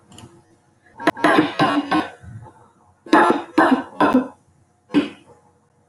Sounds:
Cough